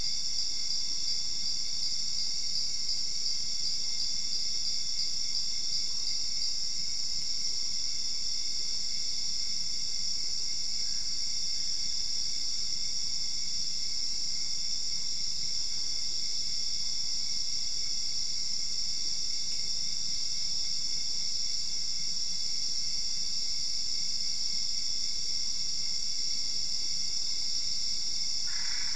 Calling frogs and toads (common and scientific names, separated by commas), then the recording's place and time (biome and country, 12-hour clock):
Dendropsophus cruzi, Boana albopunctata
Cerrado, Brazil, 1:15am